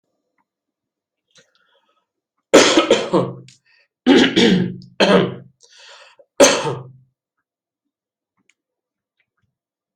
{"expert_labels": [{"quality": "ok", "cough_type": "unknown", "dyspnea": false, "wheezing": false, "stridor": false, "choking": false, "congestion": false, "nothing": true, "diagnosis": "COVID-19", "severity": "mild"}], "age": 38, "gender": "male", "respiratory_condition": true, "fever_muscle_pain": true, "status": "symptomatic"}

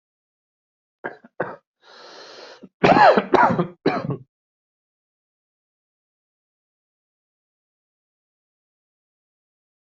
{"expert_labels": [{"quality": "ok", "cough_type": "dry", "dyspnea": false, "wheezing": false, "stridor": false, "choking": false, "congestion": false, "nothing": true, "diagnosis": "COVID-19", "severity": "mild"}], "age": 41, "gender": "male", "respiratory_condition": false, "fever_muscle_pain": false, "status": "healthy"}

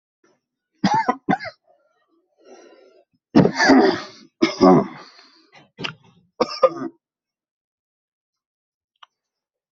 {"expert_labels": [{"quality": "ok", "cough_type": "wet", "dyspnea": false, "wheezing": false, "stridor": false, "choking": false, "congestion": false, "nothing": true, "diagnosis": "lower respiratory tract infection", "severity": "mild"}], "gender": "female", "respiratory_condition": false, "fever_muscle_pain": false, "status": "COVID-19"}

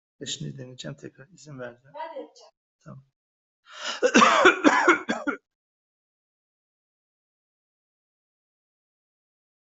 {"expert_labels": [{"quality": "good", "cough_type": "dry", "dyspnea": false, "wheezing": false, "stridor": false, "choking": false, "congestion": false, "nothing": true, "diagnosis": "lower respiratory tract infection", "severity": "mild"}], "age": 53, "gender": "male", "respiratory_condition": false, "fever_muscle_pain": false, "status": "healthy"}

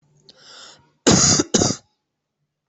{"expert_labels": [{"quality": "good", "cough_type": "wet", "dyspnea": false, "wheezing": false, "stridor": false, "choking": false, "congestion": false, "nothing": true, "diagnosis": "lower respiratory tract infection", "severity": "mild"}], "gender": "female", "respiratory_condition": false, "fever_muscle_pain": false, "status": "COVID-19"}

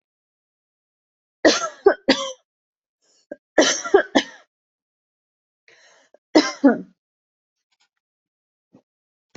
{"expert_labels": [{"quality": "good", "cough_type": "dry", "dyspnea": false, "wheezing": true, "stridor": false, "choking": false, "congestion": false, "nothing": true, "diagnosis": "obstructive lung disease", "severity": "mild"}]}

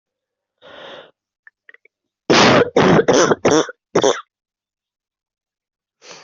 {"expert_labels": [{"quality": "ok", "cough_type": "dry", "dyspnea": false, "wheezing": false, "stridor": false, "choking": false, "congestion": false, "nothing": true, "diagnosis": "COVID-19", "severity": "severe"}], "age": 35, "gender": "female", "respiratory_condition": true, "fever_muscle_pain": false, "status": "symptomatic"}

